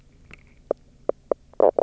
{"label": "biophony, knock croak", "recorder": "SoundTrap 300"}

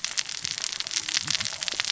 {"label": "biophony, cascading saw", "recorder": "SoundTrap 600 or HydroMoth"}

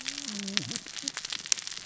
{"label": "biophony, cascading saw", "recorder": "SoundTrap 600 or HydroMoth"}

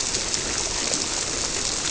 {"label": "biophony", "recorder": "SoundTrap 300"}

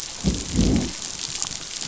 {"label": "biophony, growl", "recorder": "SoundTrap 500"}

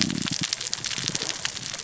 {"label": "biophony, cascading saw", "recorder": "SoundTrap 600 or HydroMoth"}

